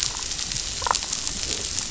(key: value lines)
label: biophony, damselfish
recorder: SoundTrap 500